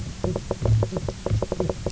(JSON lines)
{"label": "biophony, knock croak", "recorder": "SoundTrap 300"}